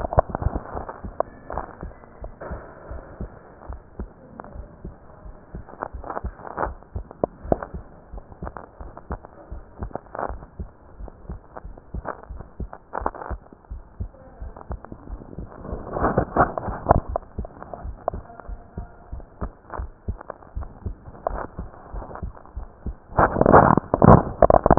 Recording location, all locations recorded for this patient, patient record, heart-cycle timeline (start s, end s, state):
pulmonary valve (PV)
aortic valve (AV)+pulmonary valve (PV)+tricuspid valve (TV)+mitral valve (MV)
#Age: Adolescent
#Sex: Female
#Height: 145.0 cm
#Weight: 30.8 kg
#Pregnancy status: False
#Murmur: Absent
#Murmur locations: nan
#Most audible location: nan
#Systolic murmur timing: nan
#Systolic murmur shape: nan
#Systolic murmur grading: nan
#Systolic murmur pitch: nan
#Systolic murmur quality: nan
#Diastolic murmur timing: nan
#Diastolic murmur shape: nan
#Diastolic murmur grading: nan
#Diastolic murmur pitch: nan
#Diastolic murmur quality: nan
#Outcome: Normal
#Campaign: 2015 screening campaign
0.00	2.20	unannotated
2.20	2.32	S1
2.32	2.50	systole
2.50	2.62	S2
2.62	2.90	diastole
2.90	3.02	S1
3.02	3.18	systole
3.18	3.32	S2
3.32	3.66	diastole
3.66	3.80	S1
3.80	4.00	systole
4.00	4.12	S2
4.12	4.50	diastole
4.50	4.66	S1
4.66	4.84	systole
4.84	4.94	S2
4.94	5.26	diastole
5.26	5.36	S1
5.36	5.54	systole
5.54	5.64	S2
5.64	5.94	diastole
5.94	6.06	S1
6.06	6.22	systole
6.22	6.34	S2
6.34	6.64	diastole
6.64	6.78	S1
6.78	6.96	systole
6.96	7.10	S2
7.10	7.44	diastole
7.44	7.60	S1
7.60	7.74	systole
7.74	7.84	S2
7.84	8.14	diastole
8.14	8.24	S1
8.24	8.42	systole
8.42	8.54	S2
8.54	8.80	diastole
8.80	8.92	S1
8.92	9.08	systole
9.08	9.20	S2
9.20	9.50	diastole
9.50	9.64	S1
9.64	9.80	systole
9.80	9.92	S2
9.92	10.28	diastole
10.28	10.42	S1
10.42	10.58	systole
10.58	10.70	S2
10.70	11.00	diastole
11.00	11.12	S1
11.12	11.28	systole
11.28	11.40	S2
11.40	11.66	diastole
11.66	11.76	S1
11.76	11.92	systole
11.92	12.06	S2
12.06	12.32	diastole
12.32	12.46	S1
12.46	12.60	systole
12.60	12.70	S2
12.70	13.00	diastole
13.00	13.12	S1
13.12	13.30	systole
13.30	13.40	S2
13.40	13.70	diastole
13.70	13.82	S1
13.82	13.98	systole
13.98	14.12	S2
14.12	14.40	diastole
14.40	14.54	S1
14.54	14.68	systole
14.68	14.80	S2
14.80	15.08	diastole
15.08	15.22	S1
15.22	15.38	systole
15.38	15.46	S2
15.46	15.70	diastole
15.70	15.82	S1
15.82	24.78	unannotated